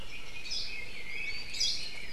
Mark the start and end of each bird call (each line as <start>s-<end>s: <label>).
0.0s-2.1s: Red-billed Leiothrix (Leiothrix lutea)
0.4s-0.8s: Hawaii Creeper (Loxops mana)
1.5s-2.0s: Hawaii Creeper (Loxops mana)